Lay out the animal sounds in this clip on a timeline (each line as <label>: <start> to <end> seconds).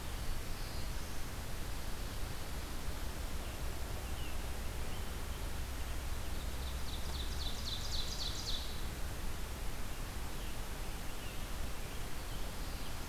Black-throated Blue Warbler (Setophaga caerulescens): 0.0 to 1.4 seconds
Scarlet Tanager (Piranga olivacea): 3.2 to 6.1 seconds
Ovenbird (Seiurus aurocapilla): 5.9 to 8.9 seconds
Scarlet Tanager (Piranga olivacea): 9.7 to 13.1 seconds